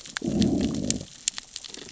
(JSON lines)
{"label": "biophony, growl", "recorder": "SoundTrap 600 or HydroMoth"}